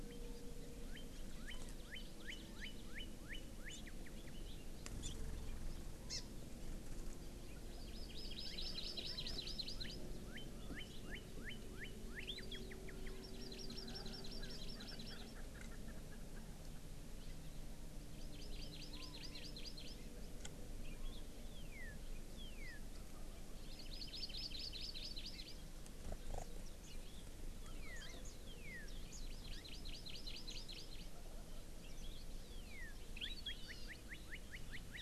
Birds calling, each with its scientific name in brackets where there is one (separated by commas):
Hawaii Amakihi (Chlorodrepanis virens), Erckel's Francolin (Pternistis erckelii), Northern Cardinal (Cardinalis cardinalis), Chinese Hwamei (Garrulax canorus)